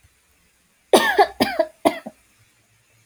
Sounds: Cough